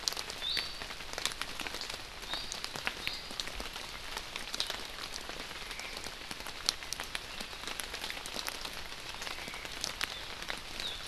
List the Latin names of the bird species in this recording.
Drepanis coccinea, Myadestes obscurus